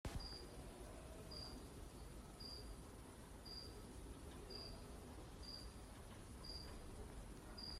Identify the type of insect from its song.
orthopteran